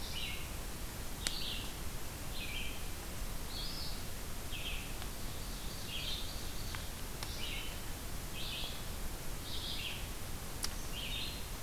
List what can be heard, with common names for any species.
Red-eyed Vireo, Ovenbird